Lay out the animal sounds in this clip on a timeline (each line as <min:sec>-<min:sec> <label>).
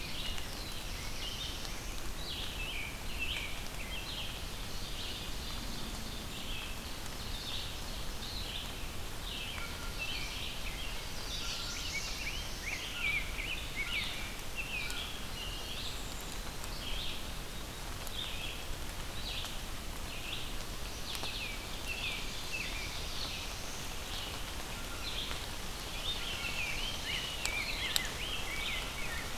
0:00.0-0:28.2 Red-eyed Vireo (Vireo olivaceus)
0:00.4-0:02.1 Black-throated Blue Warbler (Setophaga caerulescens)
0:02.4-0:04.5 American Robin (Turdus migratorius)
0:04.4-0:06.2 Ovenbird (Seiurus aurocapilla)
0:06.8-0:08.7 Ovenbird (Seiurus aurocapilla)
0:09.2-0:11.1 American Robin (Turdus migratorius)
0:11.0-0:12.9 Black-throated Blue Warbler (Setophaga caerulescens)
0:11.7-0:14.4 Rose-breasted Grosbeak (Pheucticus ludovicianus)
0:12.8-0:15.2 American Crow (Corvus brachyrhynchos)
0:15.1-0:16.7 Eastern Wood-Pewee (Contopus virens)
0:15.7-0:16.5 Black-capped Chickadee (Poecile atricapillus)
0:21.1-0:23.5 American Robin (Turdus migratorius)
0:22.4-0:23.9 Black-throated Blue Warbler (Setophaga caerulescens)
0:25.6-0:29.4 Rose-breasted Grosbeak (Pheucticus ludovicianus)
0:26.0-0:27.5 Ovenbird (Seiurus aurocapilla)